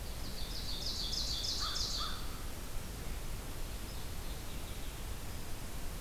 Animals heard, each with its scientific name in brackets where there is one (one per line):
Mourning Warbler (Geothlypis philadelphia)
American Crow (Corvus brachyrhynchos)
Ovenbird (Seiurus aurocapilla)